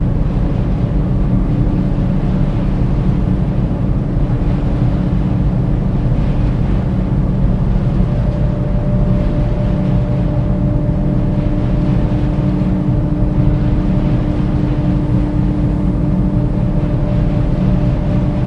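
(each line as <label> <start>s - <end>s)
A diesel-driven ventilation engine is rumbling. 0.0s - 18.5s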